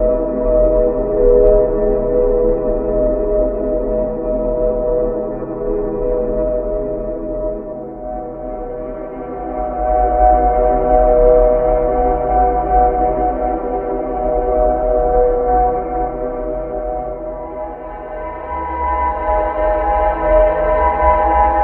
Are the noises from a factory?
no